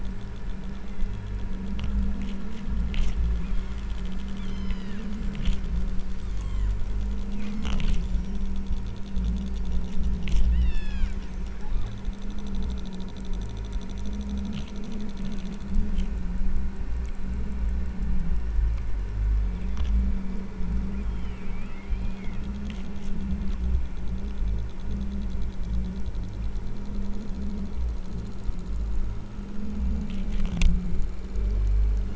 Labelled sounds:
0.8	1.4	killer whale, southern Alaska resident, 1.8 to 2.8 kHz
3.3	3.9	killer whale, southern Alaska resident, 1.9 to 3.4 kHz
4.4	5.2	killer whale, southern Alaska resident, 1.5 to 5.2 kHz
6.1	6.9	killer whale, southern Alaska resident, 0.82 to 8.0 kHz
7.3	7.9	killer whale, southern Alaska resident, 1.6 to 2.6 kHz
10.5	11.2	killer whale, southern Alaska resident, 1.2 to 8.0 kHz
11.5	12.1	killer whale, southern Alaska resident, 1.0 to 4.9 kHz
18.5	19.1	killer whale, southern Alaska resident, 2.0 to 2.9 kHz
21.0	22.5	killer whale, southern Alaska resident, 1.1 to 4.6 kHz

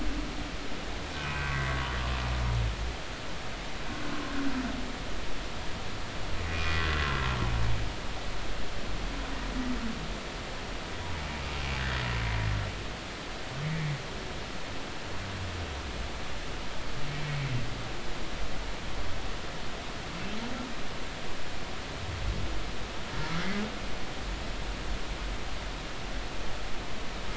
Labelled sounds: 1.2	1.5	humpback whale, 2.4 to 2.6 kHz
6.5	6.8	humpback whale, 2.4 to 2.5 kHz

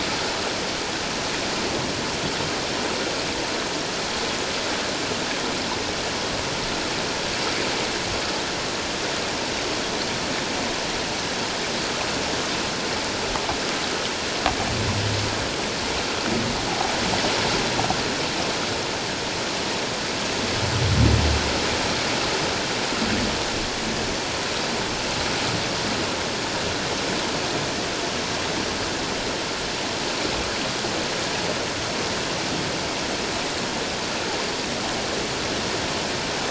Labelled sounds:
16.7	16.9	humpback whale, 0.78 to 0.91 kHz

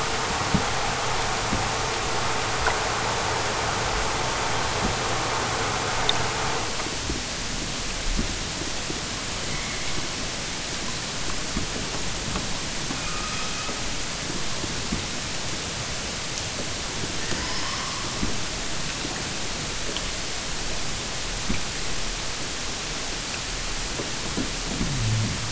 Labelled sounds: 9.4	10.1	killer whale, southern Alaska resident, 1.4 to 3.4 kHz
13.0	13.8	killer whale, southern Alaska resident, 0.64 to 6.7 kHz
17.1	18.3	killer whale, southern Alaska resident, 0.59 to 5.9 kHz

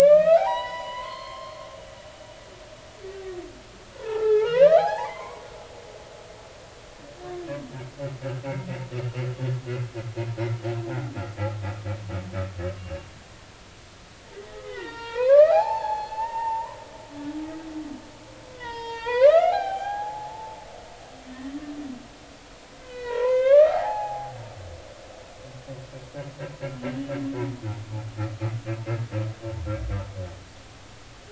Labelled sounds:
0.0	1.6	humpback whale, 0.80 to 7.9 kHz
3.9	5.5	humpback whale, 0.80 to 4.3 kHz
14.6	16.8	humpback whale, 0.80 to 4.7 kHz
18.5	20.6	humpback whale, 0.80 to 6.5 kHz
22.8	24.3	humpback whale, 0.80 to 4.3 kHz

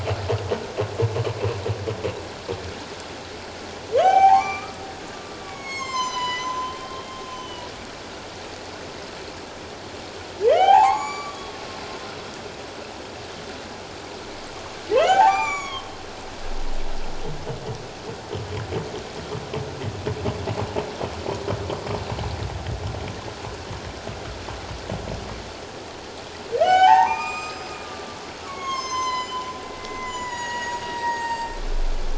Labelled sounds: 4.0	4.8	humpback whale, 0.78 to 6.3 kHz
5.4	7.7	humpback whale, 0.94 to 7.7 kHz
10.5	11.6	humpback whale, 0.78 to 7.0 kHz
15.0	15.9	humpback whale, 0.78 to 7.2 kHz
26.6	27.7	humpback whale, 0.78 to 7.6 kHz
28.4	29.5	humpback whale, 0.94 to 8.0 kHz
29.8	31.6	humpback whale, 0.81 to 7.7 kHz

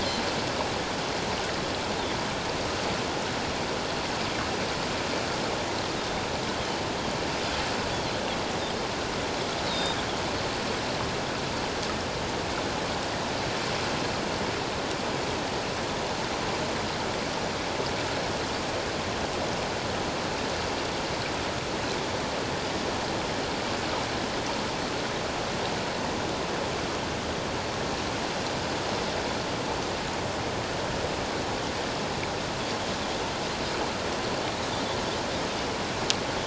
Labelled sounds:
6.6	6.9	Pacific white-sided dolphin, 2.9 to 3.3 kHz
9.6	10.0	Pacific white-sided dolphin, 3.6 to 5.1 kHz

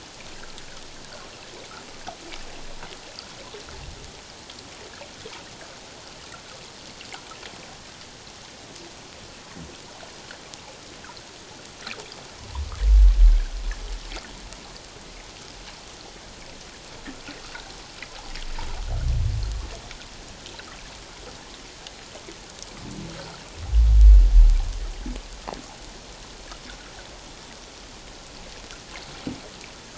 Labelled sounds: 23.1	23.4	humpback whale, 1.3 to 1.6 kHz

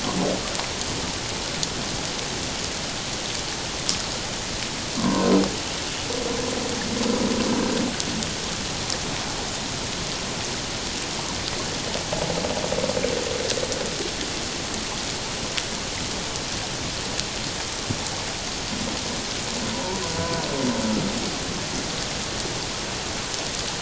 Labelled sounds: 5.0	5.3	humpback whale, 0.91 to 1.2 kHz
19.7	20.4	humpback whale, 0.88 to 1.1 kHz

